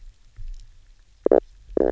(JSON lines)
{"label": "biophony, knock croak", "recorder": "SoundTrap 300"}